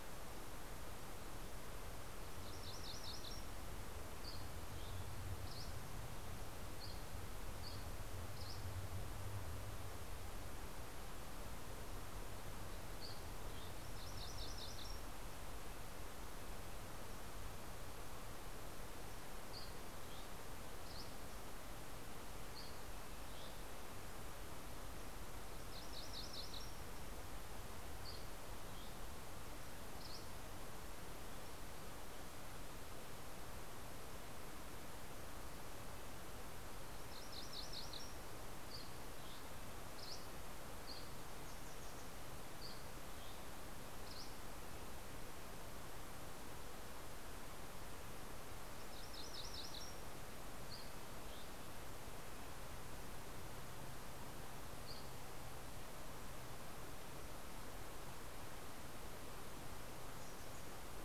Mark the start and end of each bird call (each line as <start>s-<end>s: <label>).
2.1s-3.9s: MacGillivray's Warbler (Geothlypis tolmiei)
3.5s-9.7s: Dusky Flycatcher (Empidonax oberholseri)
12.6s-13.8s: Dusky Flycatcher (Empidonax oberholseri)
13.4s-15.5s: MacGillivray's Warbler (Geothlypis tolmiei)
13.8s-17.6s: Red-breasted Nuthatch (Sitta canadensis)
18.3s-24.1s: Dusky Flycatcher (Empidonax oberholseri)
25.2s-27.0s: MacGillivray's Warbler (Geothlypis tolmiei)
27.4s-30.7s: Dusky Flycatcher (Empidonax oberholseri)
36.5s-38.6s: MacGillivray's Warbler (Geothlypis tolmiei)
38.4s-44.9s: Dusky Flycatcher (Empidonax oberholseri)
48.5s-50.1s: MacGillivray's Warbler (Geothlypis tolmiei)
50.6s-51.6s: Dusky Flycatcher (Empidonax oberholseri)
54.5s-55.5s: Dusky Flycatcher (Empidonax oberholseri)